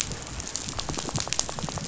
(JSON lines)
{"label": "biophony, rattle", "recorder": "SoundTrap 500"}